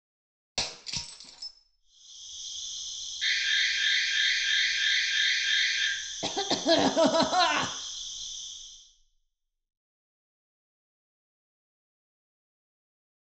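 At the start, glass shatters. Then, about 2 seconds in, the quiet sound of a cricket fades in and later fades out. Over it, about 3 seconds in, an alarm can be heard. Afterwards, about 6 seconds in, someone coughs.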